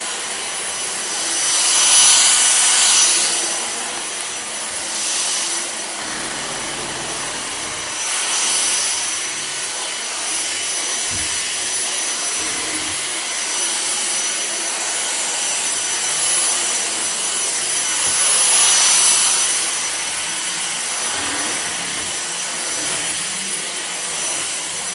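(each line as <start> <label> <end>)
0.0 A vacuum cleaner running continuously with a constant pitch and varying loudness. 24.9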